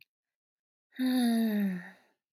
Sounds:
Sigh